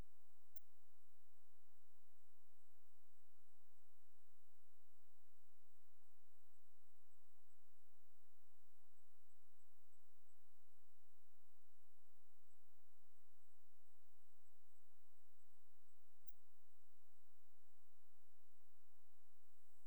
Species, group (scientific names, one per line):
Helicocercus triguttatus
Orthoptera